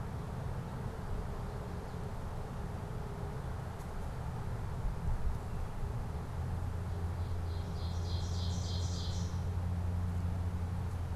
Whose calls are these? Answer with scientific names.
Seiurus aurocapilla